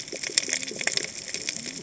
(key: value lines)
label: biophony, cascading saw
recorder: HydroMoth